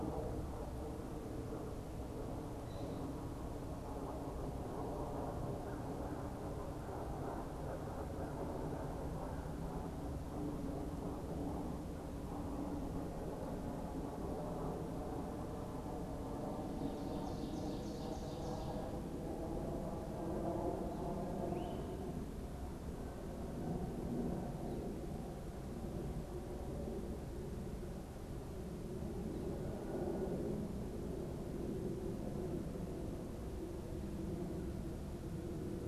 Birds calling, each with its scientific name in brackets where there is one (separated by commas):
Great Crested Flycatcher (Myiarchus crinitus), Ovenbird (Seiurus aurocapilla)